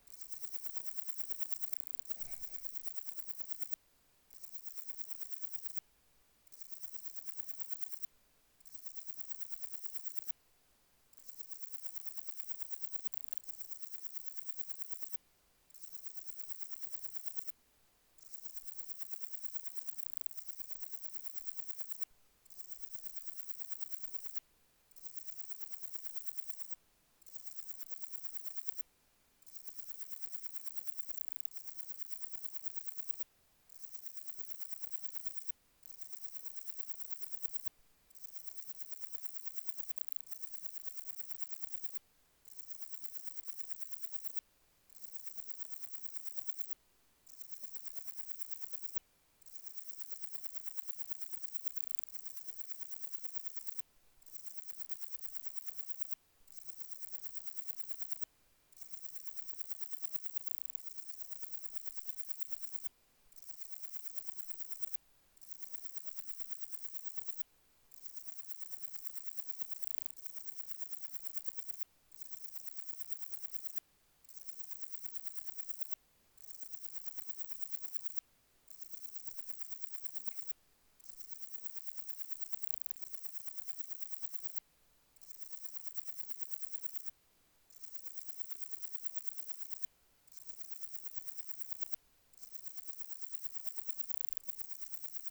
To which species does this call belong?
Parnassiana coracis